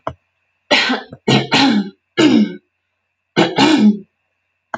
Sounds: Throat clearing